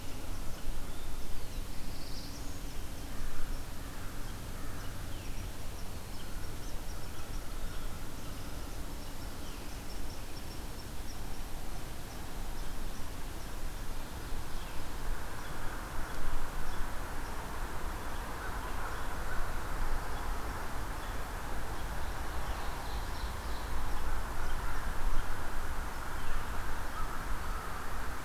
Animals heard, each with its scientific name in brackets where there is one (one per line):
Black-throated Blue Warbler (Setophaga caerulescens)
unknown mammal
American Crow (Corvus brachyrhynchos)
Ovenbird (Seiurus aurocapilla)